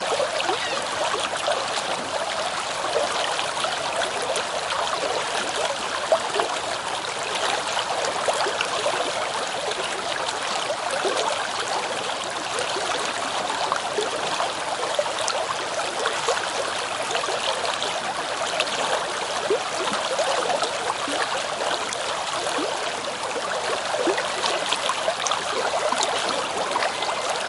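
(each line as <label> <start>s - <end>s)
A clear water stream nearby repeatedly creaks in the field. 0.0s - 27.5s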